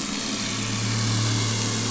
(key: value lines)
label: anthrophony, boat engine
recorder: SoundTrap 500